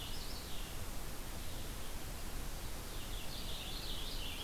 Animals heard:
Purple Finch (Haemorhous purpureus)

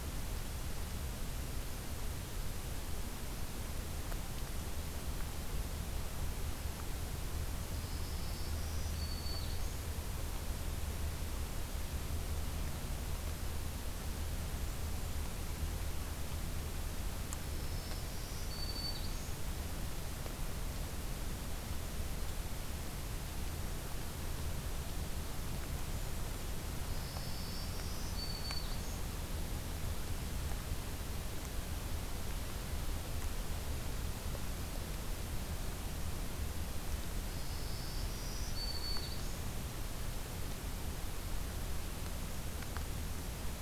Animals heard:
Black-throated Green Warbler (Setophaga virens)

